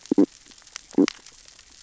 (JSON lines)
{"label": "biophony, stridulation", "recorder": "SoundTrap 600 or HydroMoth"}